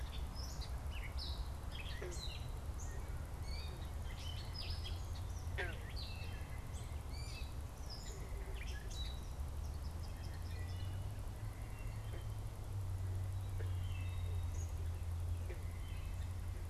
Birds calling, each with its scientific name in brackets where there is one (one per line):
Eastern Kingbird (Tyrannus tyrannus)
Wood Thrush (Hylocichla mustelina)
Gray Catbird (Dumetella carolinensis)